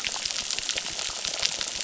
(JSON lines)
{"label": "biophony, crackle", "recorder": "SoundTrap 600"}